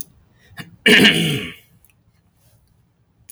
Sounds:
Throat clearing